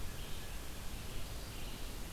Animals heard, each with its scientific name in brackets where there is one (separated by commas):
Red-eyed Vireo (Vireo olivaceus)